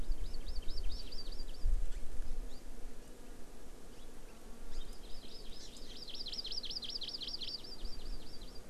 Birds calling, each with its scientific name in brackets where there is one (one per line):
Hawaii Amakihi (Chlorodrepanis virens)